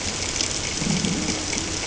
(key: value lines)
label: ambient
recorder: HydroMoth